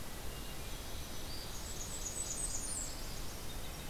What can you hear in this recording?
Hermit Thrush, Black-throated Green Warbler, Nashville Warbler, Blackburnian Warbler, Red-breasted Nuthatch